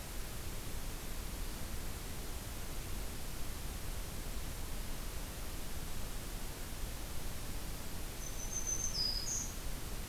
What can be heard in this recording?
Black-throated Green Warbler